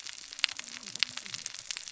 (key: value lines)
label: biophony, cascading saw
recorder: SoundTrap 600 or HydroMoth